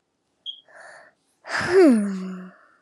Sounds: Sigh